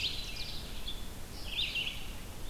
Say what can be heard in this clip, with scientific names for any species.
Seiurus aurocapilla, Vireo olivaceus